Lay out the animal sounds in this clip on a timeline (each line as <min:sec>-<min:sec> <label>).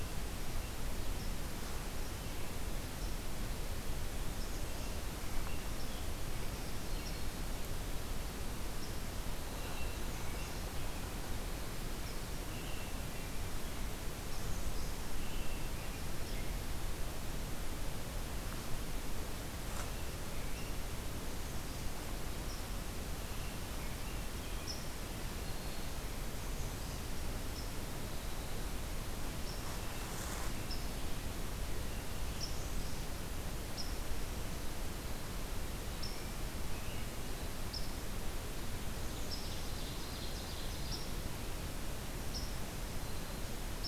0:04.2-0:04.9 American Redstart (Setophaga ruticilla)
0:09.5-0:10.7 American Robin (Turdus migratorius)
0:09.8-0:10.6 American Redstart (Setophaga ruticilla)
0:12.4-0:13.8 American Robin (Turdus migratorius)
0:14.1-0:15.0 American Redstart (Setophaga ruticilla)
0:15.1-0:16.5 American Robin (Turdus migratorius)
0:21.2-0:22.1 American Redstart (Setophaga ruticilla)
0:23.1-0:24.7 American Robin (Turdus migratorius)
0:25.2-0:26.1 Black-throated Green Warbler (Setophaga virens)
0:26.3-0:27.0 American Redstart (Setophaga ruticilla)
0:32.3-0:33.1 American Redstart (Setophaga ruticilla)
0:39.0-0:41.0 Ovenbird (Seiurus aurocapilla)